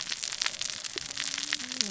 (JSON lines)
{"label": "biophony, cascading saw", "recorder": "SoundTrap 600 or HydroMoth"}